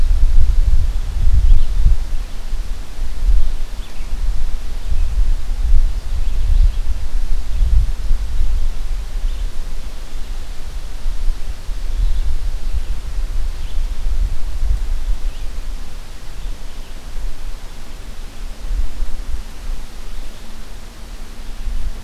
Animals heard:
forest ambience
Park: Marsh-Billings-Rockefeller National Historical Park